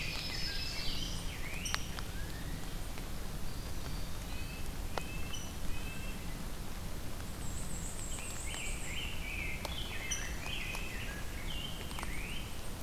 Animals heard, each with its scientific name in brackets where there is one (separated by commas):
Eastern Wood-Pewee (Contopus virens), Black-throated Green Warbler (Setophaga virens), Ovenbird (Seiurus aurocapilla), Black-and-white Warbler (Mniotilta varia), Red-breasted Nuthatch (Sitta canadensis), Rose-breasted Grosbeak (Pheucticus ludovicianus)